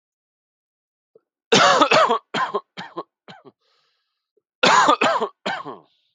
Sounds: Cough